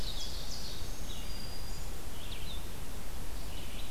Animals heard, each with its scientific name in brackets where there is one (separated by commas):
Red-eyed Vireo (Vireo olivaceus), Black-throated Green Warbler (Setophaga virens), Ovenbird (Seiurus aurocapilla)